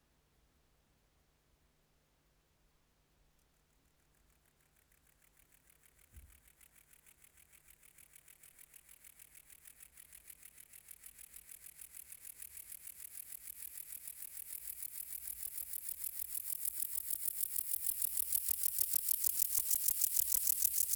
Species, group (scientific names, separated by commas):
Chorthippus binotatus, Orthoptera